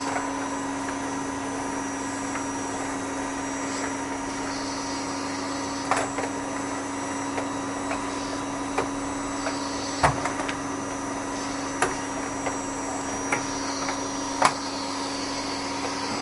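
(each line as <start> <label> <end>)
0.1 A vacuum cleaner operates while cleaning a room. 16.2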